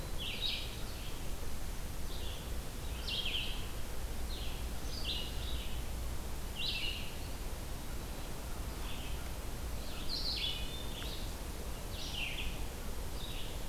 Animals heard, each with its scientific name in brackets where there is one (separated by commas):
Red-eyed Vireo (Vireo olivaceus), Eastern Wood-Pewee (Contopus virens)